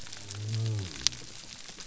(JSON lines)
{"label": "biophony", "recorder": "SoundTrap 300"}